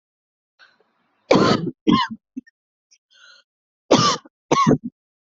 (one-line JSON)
{"expert_labels": [{"quality": "good", "cough_type": "unknown", "dyspnea": false, "wheezing": false, "stridor": false, "choking": false, "congestion": false, "nothing": true, "diagnosis": "upper respiratory tract infection", "severity": "mild"}], "age": 36, "gender": "female", "respiratory_condition": true, "fever_muscle_pain": false, "status": "symptomatic"}